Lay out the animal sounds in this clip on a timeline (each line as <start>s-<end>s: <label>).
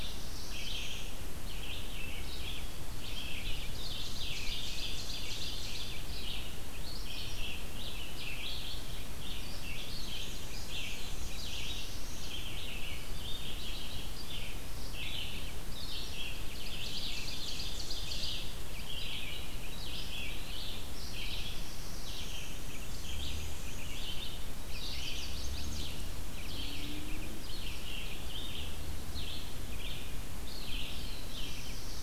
0.0s-1.1s: Black-throated Blue Warbler (Setophaga caerulescens)
0.6s-32.0s: Red-eyed Vireo (Vireo olivaceus)
3.5s-6.0s: Ovenbird (Seiurus aurocapilla)
9.3s-10.5s: Chestnut-sided Warbler (Setophaga pensylvanica)
10.0s-11.7s: Black-and-white Warbler (Mniotilta varia)
11.0s-12.4s: Black-throated Blue Warbler (Setophaga caerulescens)
16.3s-18.5s: Ovenbird (Seiurus aurocapilla)
20.9s-22.5s: Black-throated Blue Warbler (Setophaga caerulescens)
22.3s-24.2s: Black-and-white Warbler (Mniotilta varia)
24.6s-26.0s: Chestnut-sided Warbler (Setophaga pensylvanica)
30.4s-32.0s: Black-throated Blue Warbler (Setophaga caerulescens)